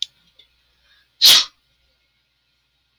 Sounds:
Sneeze